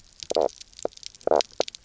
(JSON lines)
{"label": "biophony, knock croak", "recorder": "SoundTrap 300"}